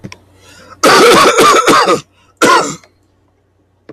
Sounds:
Cough